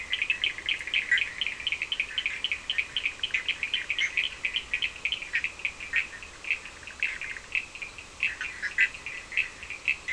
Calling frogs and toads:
Boana bischoffi, Sphaenorhynchus surdus
3:30am

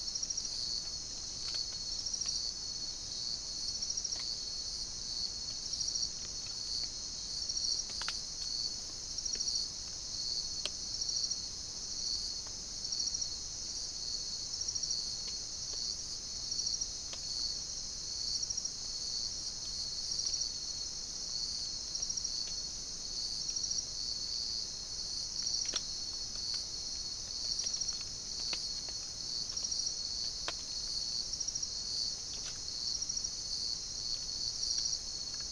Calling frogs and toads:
none
4:00am

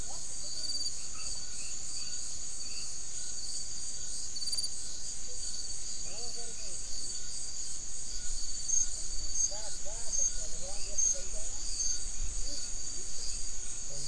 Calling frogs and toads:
Boana albomarginata
8:15pm

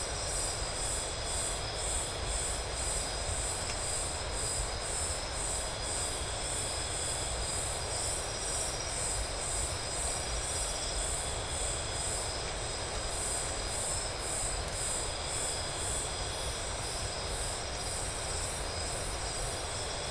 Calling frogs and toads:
none
2:00am

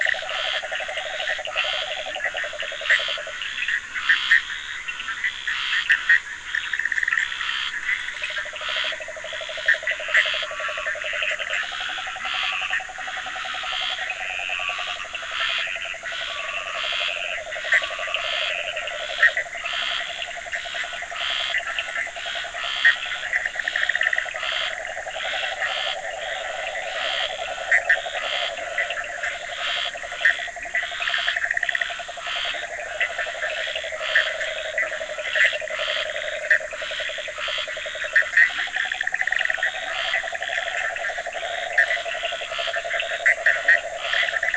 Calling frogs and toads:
Rhinella icterica, Sphaenorhynchus surdus, Scinax perereca, Leptodactylus latrans, Boana bischoffi
11:30pm

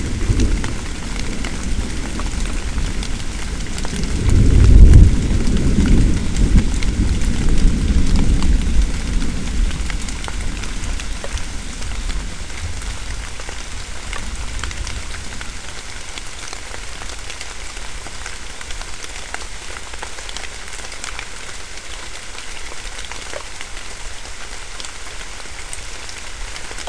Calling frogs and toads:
none
6:30pm

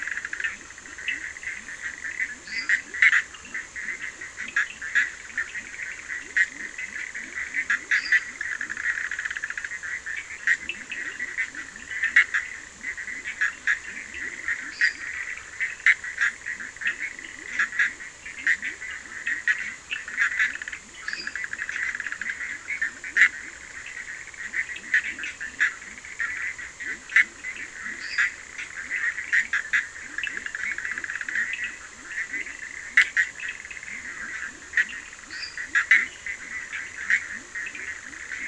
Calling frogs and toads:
Boana bischoffi, Leptodactylus latrans, Sphaenorhynchus surdus, Dendropsophus minutus
12:15am

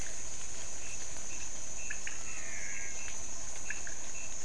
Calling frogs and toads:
Leptodactylus podicipinus, Physalaemus albonotatus
12:00am

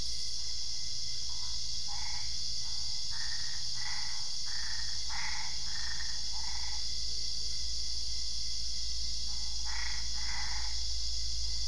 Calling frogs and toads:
Boana albopunctata
12:00am

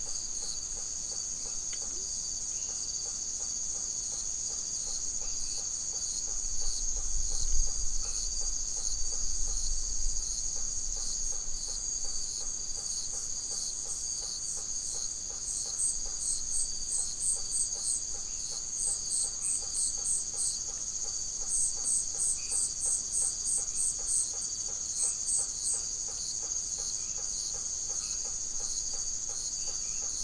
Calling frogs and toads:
Boana faber, Leptodactylus latrans, Dendropsophus elegans
8:30pm

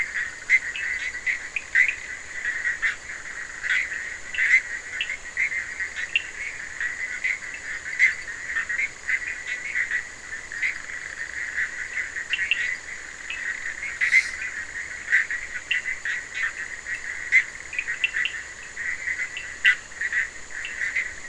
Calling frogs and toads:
Sphaenorhynchus surdus, Boana bischoffi
2:15am

